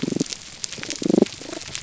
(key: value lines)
label: biophony
recorder: SoundTrap 300